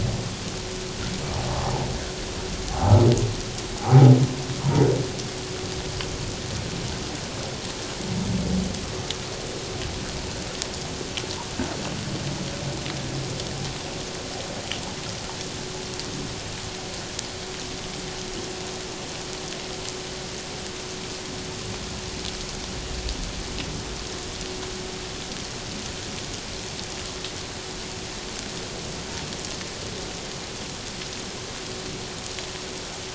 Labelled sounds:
2.7	2.9	humpback whale, 0.78 to 0.91 kHz
3.8	4.1	humpback whale, 0.78 to 0.88 kHz

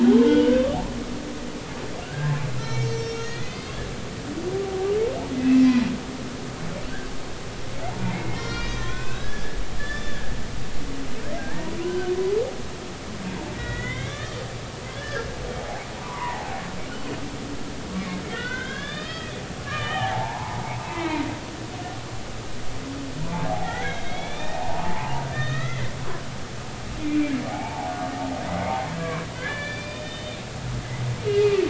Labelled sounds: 2.0	3.8	humpback whale, 1.3 to 6.4 kHz
5.4	5.7	humpback whale, 1.9 to 2.7 kHz
8.1	10.3	humpback whale, 1.1 to 6.3 kHz
11.4	12.1	humpback whale, 0.83 to 2.0 kHz
13.5	14.4	humpback whale, 1.1 to 3.9 kHz
15.0	16.6	humpback whale, 0.80 to 2.2 kHz
18.3	20.6	humpback whale, 0.80 to 5.3 kHz
20.9	21.3	humpback whale, 2.0 to 2.8 kHz
23.5	25.9	humpback whale, 0.80 to 4.0 kHz
27.0	27.9	humpback whale, 0.80 to 2.5 kHz
28.9	30.4	humpback whale, 0.99 to 4.8 kHz
31.3	31.6	humpback whale, 2.3 to 4.7 kHz

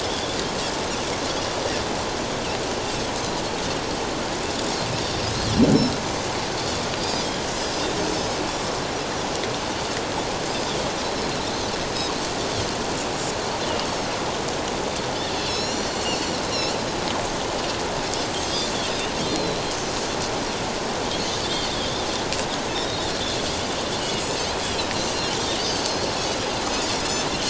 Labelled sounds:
7.0	7.4	Pacific white-sided dolphin, 3.1 to 5.1 kHz
15.4	16.4	Pacific white-sided dolphin, 3.9 to 7.4 kHz
18.5	18.7	Pacific white-sided dolphin, 4.6 to 5.2 kHz
19.3	19.6	Pacific white-sided dolphin, 3.9 to 4.3 kHz
21.7	22.0	Pacific white-sided dolphin, 3.1 to 3.8 kHz
22.7	23.1	Pacific white-sided dolphin, 3.4 to 3.8 kHz
24.0	24.3	Pacific white-sided dolphin, 2.7 to 3.2 kHz
26.1	27.3	Pacific white-sided dolphin, 4.2 to 5.4 kHz

